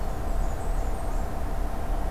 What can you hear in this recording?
Blackburnian Warbler